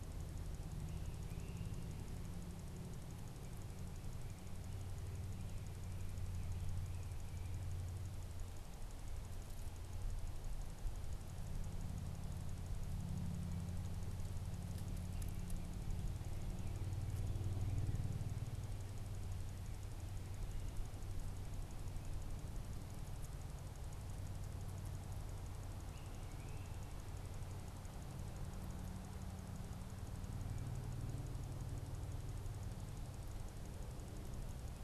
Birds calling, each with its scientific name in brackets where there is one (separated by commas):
Great Crested Flycatcher (Myiarchus crinitus)